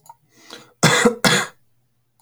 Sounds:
Cough